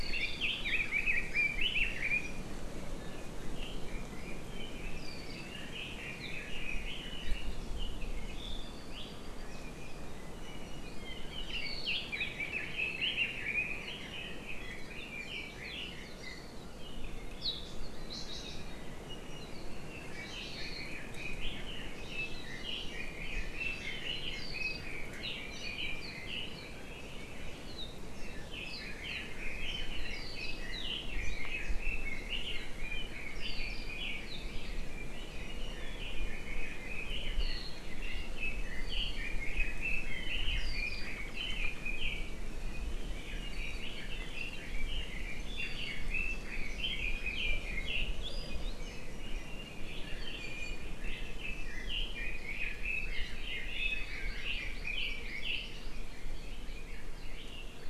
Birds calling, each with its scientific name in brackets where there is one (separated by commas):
Hawaii Amakihi (Chlorodrepanis virens), Iiwi (Drepanis coccinea), Apapane (Himatione sanguinea), Red-billed Leiothrix (Leiothrix lutea)